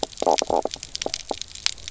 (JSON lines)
{"label": "biophony, knock croak", "recorder": "SoundTrap 300"}